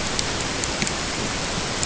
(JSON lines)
{"label": "ambient", "recorder": "HydroMoth"}